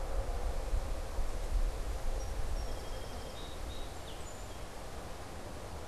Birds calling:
Song Sparrow (Melospiza melodia)

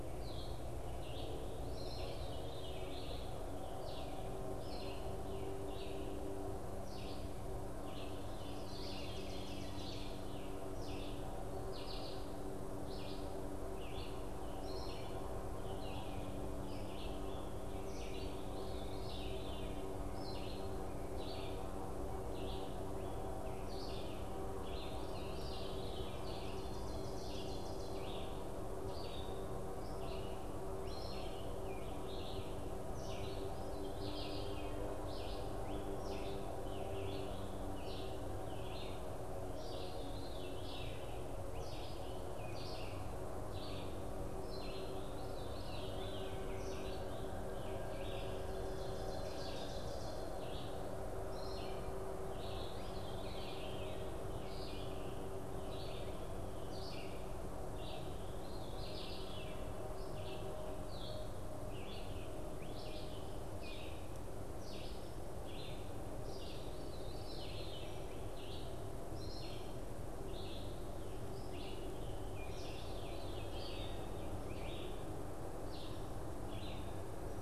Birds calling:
Veery (Catharus fuscescens)
Red-eyed Vireo (Vireo olivaceus)
Scarlet Tanager (Piranga olivacea)
Ovenbird (Seiurus aurocapilla)

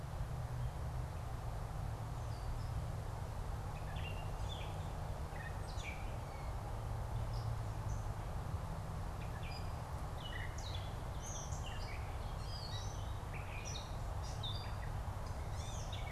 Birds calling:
Gray Catbird (Dumetella carolinensis)

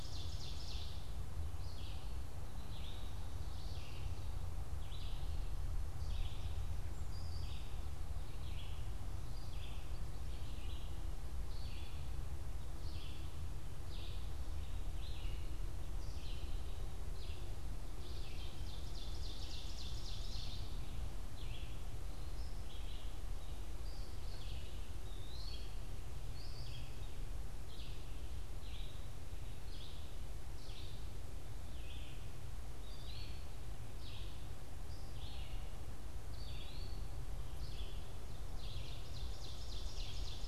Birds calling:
Eastern Wood-Pewee (Contopus virens)
Red-eyed Vireo (Vireo olivaceus)
Ovenbird (Seiurus aurocapilla)

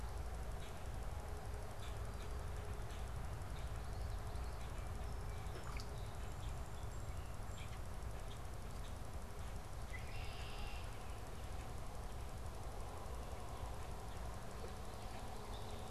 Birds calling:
Song Sparrow (Melospiza melodia)
Red-winged Blackbird (Agelaius phoeniceus)

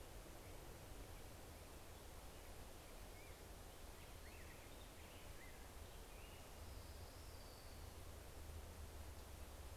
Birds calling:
American Robin (Turdus migratorius)
Orange-crowned Warbler (Leiothlypis celata)

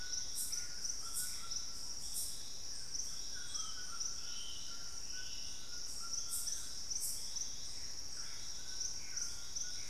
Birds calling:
Gray Antbird (Cercomacra cinerascens)
White-throated Toucan (Ramphastos tucanus)
Black-spotted Bare-eye (Phlegopsis nigromaculata)

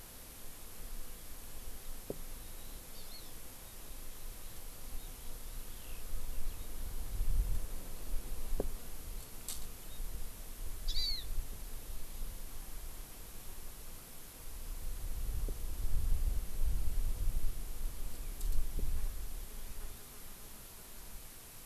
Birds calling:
Hawaii Amakihi (Chlorodrepanis virens)
Eurasian Skylark (Alauda arvensis)

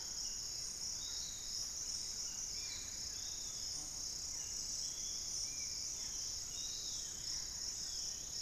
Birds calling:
Thrush-like Wren (Campylorhynchus turdinus)
Plain-winged Antshrike (Thamnophilus schistaceus)
Barred Forest-Falcon (Micrastur ruficollis)
Piratic Flycatcher (Legatus leucophaius)
Long-winged Antwren (Myrmotherula longipennis)
Spot-winged Antshrike (Pygiptila stellaris)

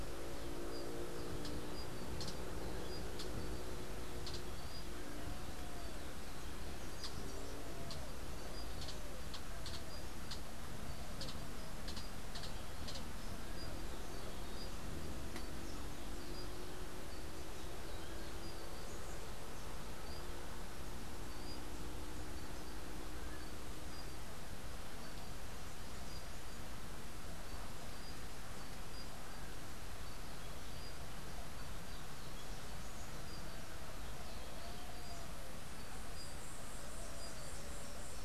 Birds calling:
Rufous-tailed Hummingbird (Amazilia tzacatl)

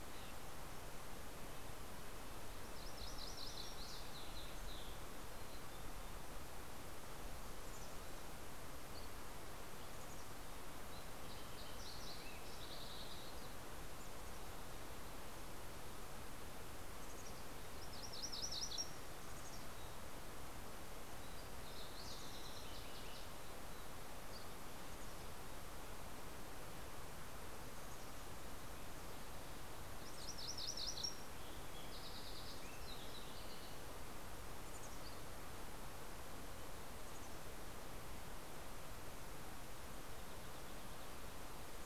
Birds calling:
Green-tailed Towhee (Pipilo chlorurus)
MacGillivray's Warbler (Geothlypis tolmiei)
Mountain Chickadee (Poecile gambeli)
Fox Sparrow (Passerella iliaca)
Red-breasted Nuthatch (Sitta canadensis)

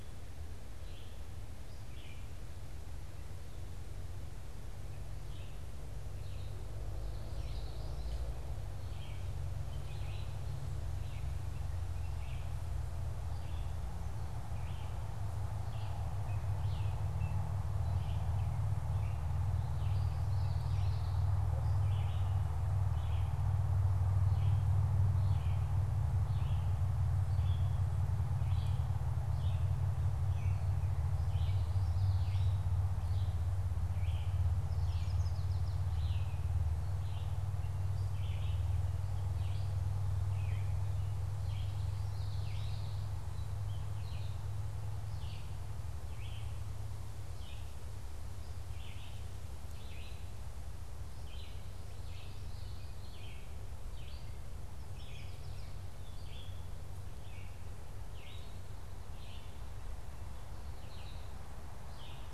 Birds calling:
Red-eyed Vireo (Vireo olivaceus)
Common Yellowthroat (Geothlypis trichas)
Yellow Warbler (Setophaga petechia)

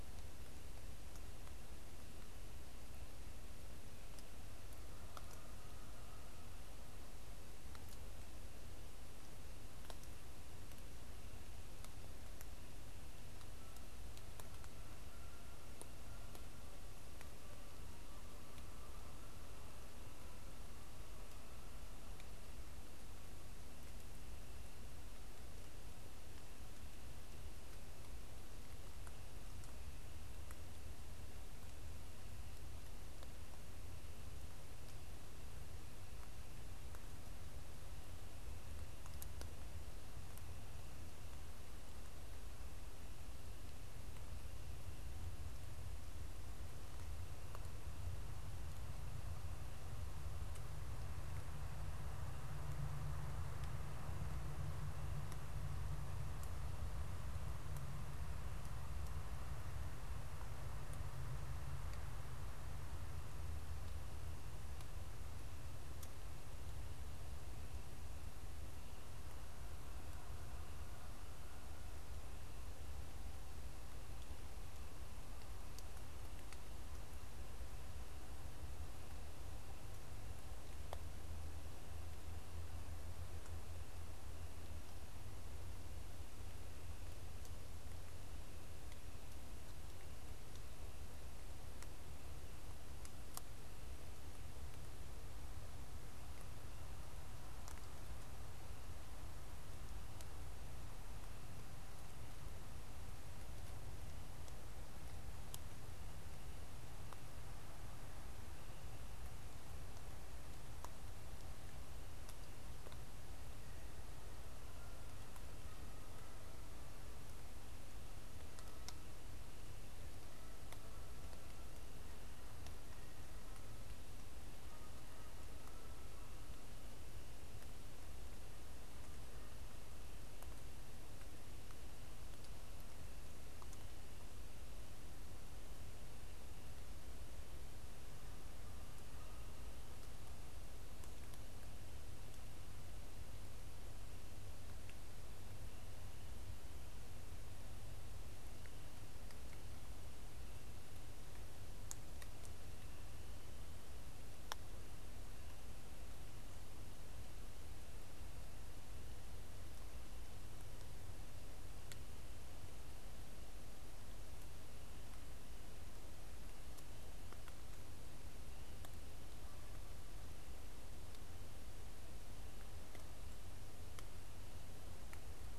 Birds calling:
Canada Goose (Branta canadensis)

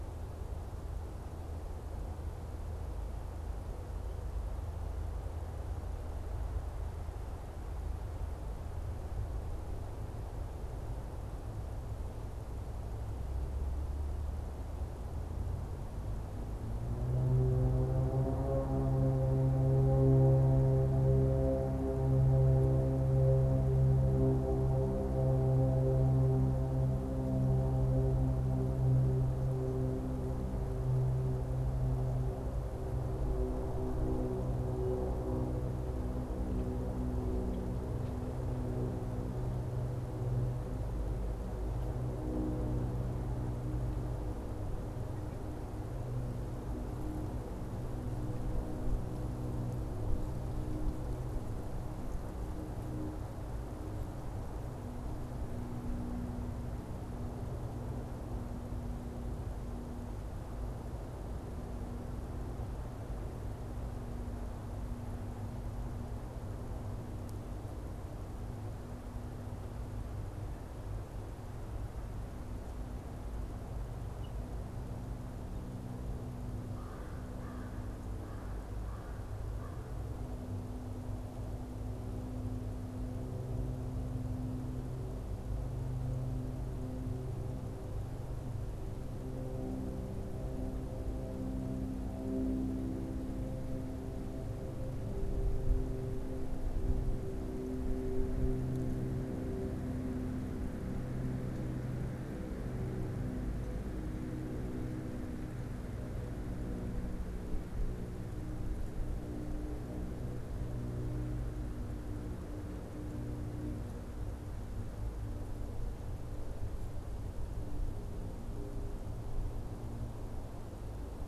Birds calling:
American Crow (Corvus brachyrhynchos)

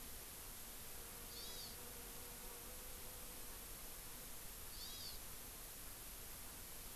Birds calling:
Hawaii Amakihi (Chlorodrepanis virens)

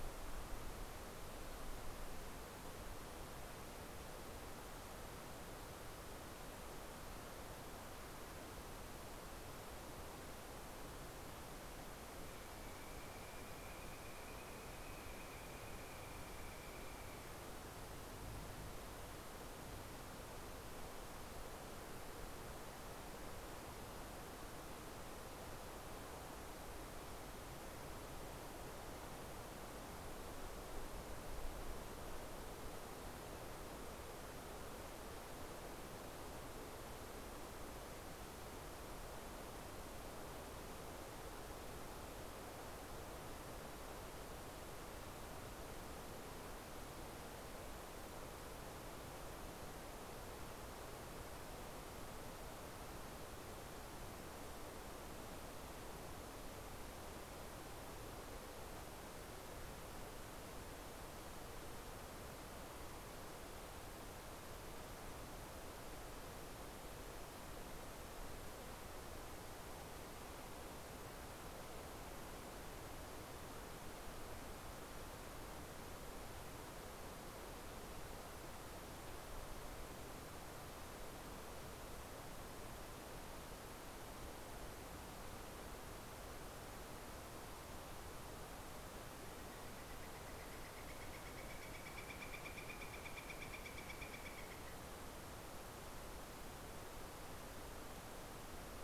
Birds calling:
Northern Flicker (Colaptes auratus)

